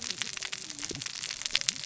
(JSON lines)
{"label": "biophony, cascading saw", "recorder": "SoundTrap 600 or HydroMoth"}